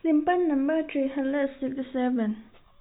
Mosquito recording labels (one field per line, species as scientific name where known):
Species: no mosquito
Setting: cup